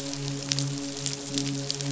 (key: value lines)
label: biophony, midshipman
recorder: SoundTrap 500